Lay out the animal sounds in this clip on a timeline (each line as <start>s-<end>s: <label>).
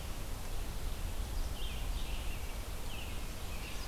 0.0s-3.9s: Red-eyed Vireo (Vireo olivaceus)
1.5s-3.8s: American Robin (Turdus migratorius)